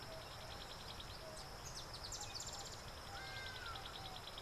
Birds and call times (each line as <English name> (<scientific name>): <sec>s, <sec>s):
Hadada Ibis (Bostrychia hagedash): 3.4s